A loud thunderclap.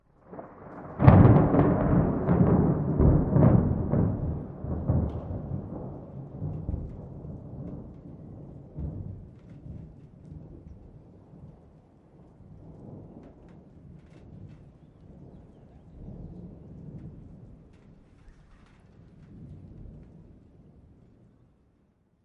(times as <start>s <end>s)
0.8s 8.0s